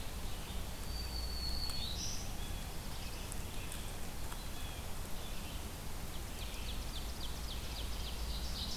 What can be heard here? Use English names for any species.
Red-eyed Vireo, Black-throated Green Warbler, Black-throated Blue Warbler, Blue Jay, Ovenbird